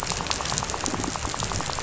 {"label": "biophony, rattle", "recorder": "SoundTrap 500"}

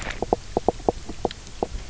{"label": "biophony, knock croak", "recorder": "SoundTrap 300"}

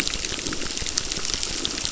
{"label": "biophony, crackle", "recorder": "SoundTrap 600"}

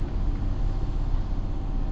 {"label": "anthrophony, boat engine", "recorder": "SoundTrap 300"}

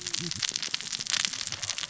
{"label": "biophony, cascading saw", "recorder": "SoundTrap 600 or HydroMoth"}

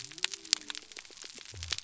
{"label": "biophony", "recorder": "SoundTrap 300"}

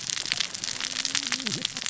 {"label": "biophony, cascading saw", "recorder": "SoundTrap 600 or HydroMoth"}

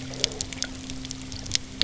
{"label": "anthrophony, boat engine", "recorder": "SoundTrap 300"}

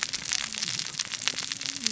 {"label": "biophony, cascading saw", "recorder": "SoundTrap 600 or HydroMoth"}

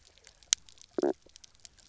{"label": "biophony, knock croak", "recorder": "SoundTrap 300"}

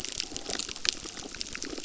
{"label": "biophony, crackle", "recorder": "SoundTrap 600"}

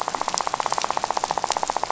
{"label": "biophony, rattle", "recorder": "SoundTrap 500"}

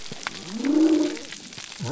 {"label": "biophony", "recorder": "SoundTrap 300"}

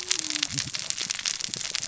{"label": "biophony, cascading saw", "recorder": "SoundTrap 600 or HydroMoth"}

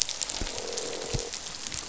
{"label": "biophony, croak", "recorder": "SoundTrap 500"}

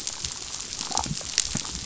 {"label": "biophony, damselfish", "recorder": "SoundTrap 500"}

